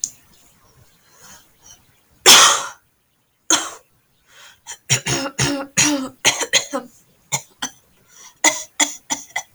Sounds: Cough